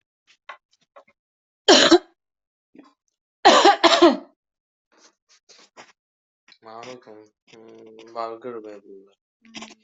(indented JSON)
{
  "expert_labels": [
    {
      "quality": "good",
      "cough_type": "dry",
      "dyspnea": false,
      "wheezing": false,
      "stridor": false,
      "choking": false,
      "congestion": false,
      "nothing": true,
      "diagnosis": "upper respiratory tract infection",
      "severity": "mild"
    }
  ],
  "age": 45,
  "gender": "female",
  "respiratory_condition": false,
  "fever_muscle_pain": false,
  "status": "healthy"
}